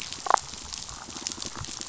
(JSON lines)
{"label": "biophony, damselfish", "recorder": "SoundTrap 500"}
{"label": "biophony", "recorder": "SoundTrap 500"}